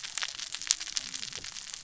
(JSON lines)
{"label": "biophony, cascading saw", "recorder": "SoundTrap 600 or HydroMoth"}